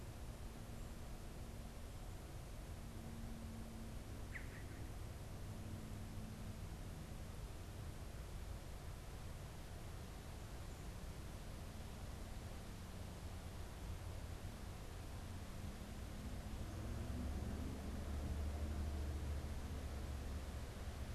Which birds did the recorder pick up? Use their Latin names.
unidentified bird